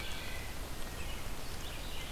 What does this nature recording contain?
Wood Thrush, Red-eyed Vireo, American Robin